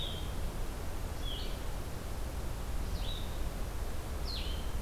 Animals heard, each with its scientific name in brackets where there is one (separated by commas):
Blue-headed Vireo (Vireo solitarius)